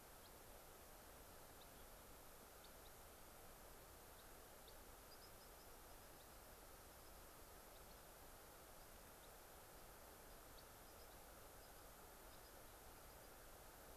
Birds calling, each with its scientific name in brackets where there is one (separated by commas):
unidentified bird